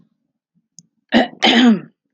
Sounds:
Throat clearing